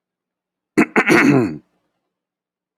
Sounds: Throat clearing